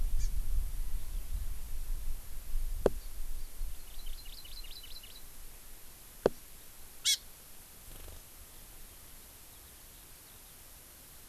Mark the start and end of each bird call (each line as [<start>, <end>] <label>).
[0.01, 0.41] Hawaii Amakihi (Chlorodrepanis virens)
[3.61, 5.31] Hawaii Amakihi (Chlorodrepanis virens)
[7.01, 7.31] Hawaii Amakihi (Chlorodrepanis virens)